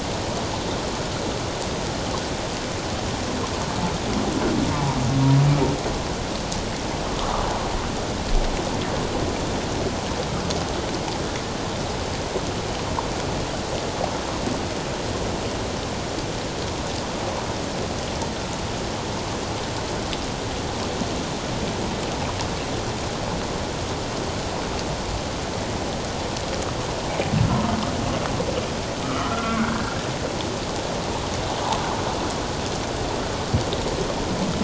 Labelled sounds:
29.0	30.0	humpback whale, 1.1 to 2.3 kHz

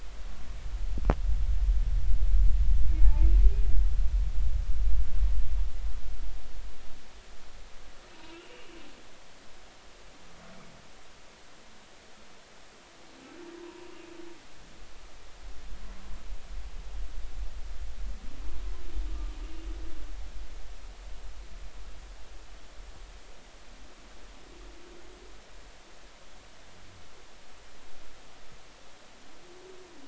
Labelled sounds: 3.0	3.3	humpback whale, 0.83 to 0.96 kHz
13.5	13.9	humpback whale, 0.90 to 1.0 kHz
19.1	19.3	humpback whale, 1.15 to 1.25 kHz

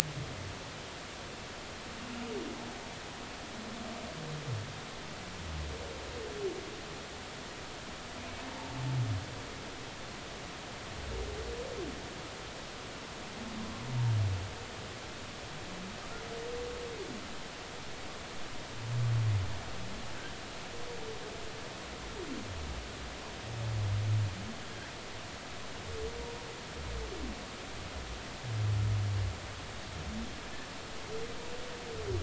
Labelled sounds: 8.5	8.8	humpback whale, 0.80 to 0.96 kHz

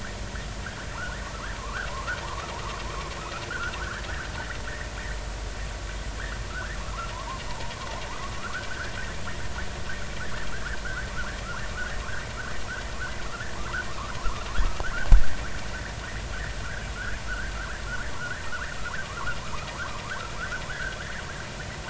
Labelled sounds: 1.6	2.5	vessel noise, 0.90 to 1.7 kHz
3.5	4.0	vessel noise, 1.2 to 1.8 kHz
6.5	7.4	vessel noise, 0.86 to 2.0 kHz
8.4	8.9	vessel noise, 1.1 to 1.8 kHz
10.5	10.8	vessel noise, 1.1 to 1.8 kHz
13.5	13.9	vessel noise, 0.99 to 1.7 kHz
17.0	17.5	vessel noise, 1.3 to 1.8 kHz
18.2	18.7	vessel noise, 0.96 to 1.9 kHz
19.4	19.7	vessel noise, 0.90 to 1.4 kHz
20.7	21.0	vessel noise, 1.4 to 2.0 kHz

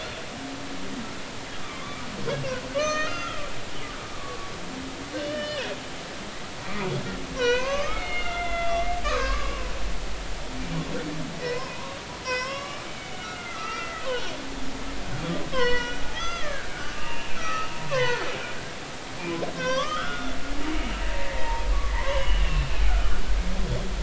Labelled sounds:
1.6	2.0	humpback whale, 1.0 to 1.3 kHz
2.8	3.4	humpback whale, 1.1 to 6.3 kHz
4.1	4.4	humpback whale, 1.1 to 1.2 kHz
5.2	5.7	humpback whale, 1.7 to 5.5 kHz
7.3	9.7	humpback whale, 0.90 to 6.3 kHz
11.4	14.1	humpback whale, 0.90 to 5.6 kHz
15.5	18.2	humpback whale, 0.90 to 6.3 kHz
19.5	20.4	humpback whale, 0.96 to 6.2 kHz
21.3	21.7	humpback whale, 0.86 to 2.1 kHz
21.9	23.2	humpback whale, 0.83 to 3.1 kHz

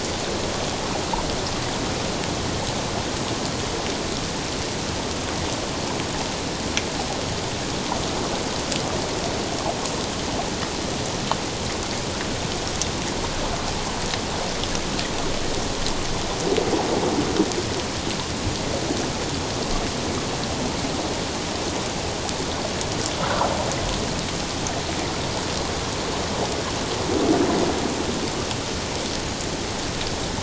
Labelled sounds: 23.2	23.5	water noise, 1.2 to 1.6 kHz

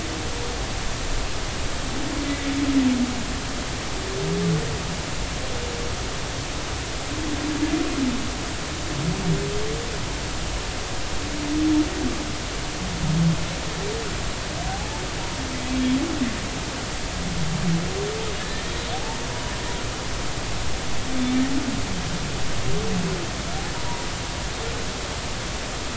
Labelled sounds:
2.2	2.5	humpback whale, 1.9 to 2.1 kHz
14.7	15.0	humpback whale, 0.80 to 0.93 kHz
18.4	19.3	humpback whale, 0.80 to 1.9 kHz
23.7	24.1	humpback whale, 0.90 to 1.0 kHz

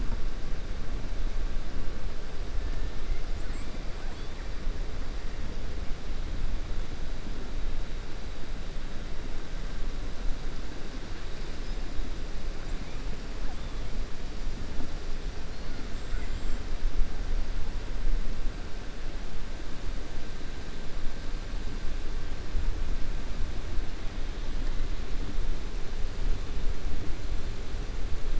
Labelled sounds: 15.9	16.6	killer whale, 6.4 to 8.0 kHz

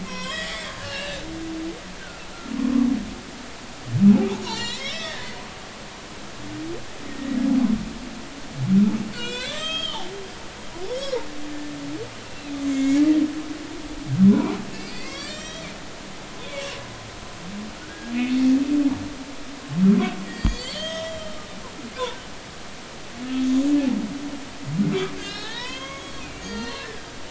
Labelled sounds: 0.0	1.2	humpback whale, 0.96 to 5.5 kHz
2.0	2.2	humpback whale, 1.3 to 1.6 kHz
2.6	2.9	humpback whale, 0.99 to 1.2 kHz
4.4	5.3	humpback whale, 0.83 to 7.3 kHz
7.1	7.4	humpback whale, 1.8 to 2.0 kHz
9.1	10.1	humpback whale, 1.1 to 7.7 kHz
10.9	11.3	humpback whale, 0.86 to 5.7 kHz
12.2	13.0	humpback whale, 2.1 to 7.5 kHz
14.2	15.7	humpback whale, 0.80 to 7.7 kHz
16.4	16.8	humpback whale, 2.7 to 3.7 kHz
17.8	18.1	humpback whale, 1.4 to 1.7 kHz
20.3	21.2	humpback whale, 1.8 to 6.5 kHz
25.2	27.1	humpback whale, 0.80 to 6.7 kHz

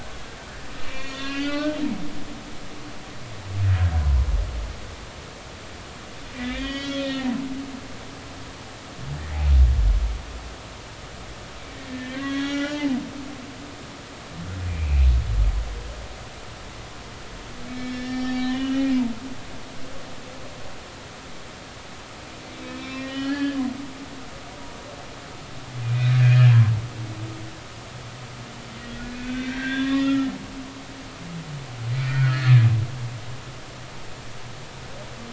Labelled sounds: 0.8	1.8	humpback whale, 1.3 to 4.2 kHz
6.4	7.3	humpback whale, 1.7 to 4.8 kHz
11.9	12.9	humpback whale, 0.83 to 5.9 kHz
14.7	15.1	humpback whale, 2.2 to 2.7 kHz
17.7	19.0	humpback whale, 1.7 to 5.7 kHz
19.5	19.9	humpback whale, 2.8 to 3.0 kHz
22.6	23.6	humpback whale, 1.6 to 5.2 kHz
25.8	26.5	humpback whale, 2.3 to 4.0 kHz
29.1	30.3	humpback whale, 0.99 to 5.8 kHz
32.0	32.7	humpback whale, 1.3 to 4.4 kHz

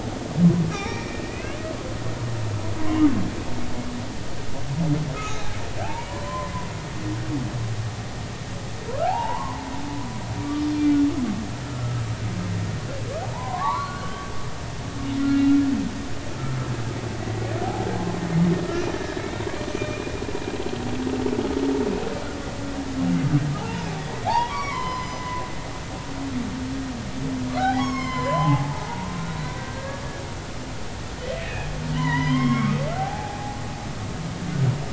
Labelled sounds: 0.7	1.6	humpback whale, 0.80 to 5.9 kHz
2.8	3.1	humpback whale, 0.93 to 1.3 kHz
5.2	6.5	humpback whale, 0.80 to 3.9 kHz
9.0	9.7	humpback whale, 0.80 to 2.9 kHz
11.7	12.0	humpback whale, 1.2 to 1.4 kHz
13.2	14.3	humpback whale, 0.80 to 4.4 kHz
15.2	15.6	humpback whale, 1.3 to 1.4 kHz
19.0	20.1	humpback whale, 2.3 to 4.0 kHz
23.6	25.2	humpback whale, 0.80 to 6.1 kHz
27.6	28.8	humpback whale, 0.80 to 7.2 kHz
29.2	30.0	humpback whale, 1.5 to 4.1 kHz
31.4	33.6	humpback whale, 0.80 to 5.5 kHz

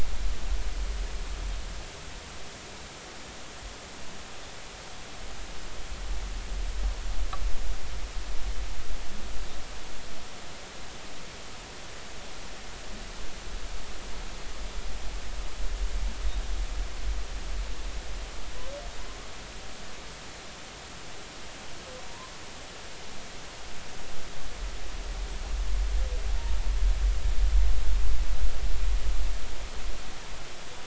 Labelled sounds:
22.0	22.3	humpback whale, 0.86 to 1.1 kHz

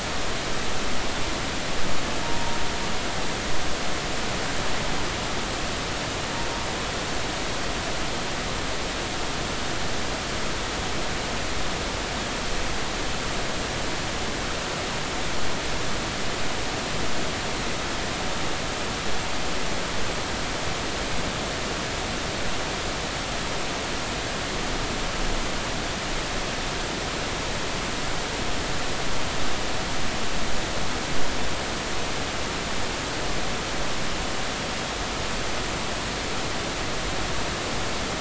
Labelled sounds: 2.2	2.6	humpback whale, 0.90 to 0.99 kHz

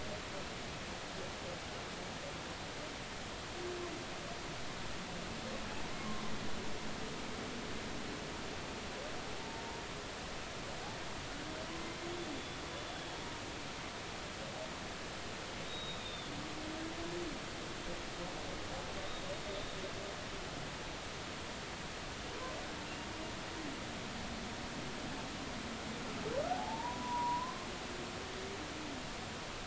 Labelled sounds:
6.0	6.2	humpback whale, 0.99 to 1.2 kHz
12.3	13.2	humpback whale, 3.3 to 3.5 kHz
15.6	16.3	humpback whale, 3.4 to 3.8 kHz
22.8	23.1	humpback whale, 2.7 to 2.9 kHz
26.5	27.7	humpback whale, 0.80 to 1.1 kHz

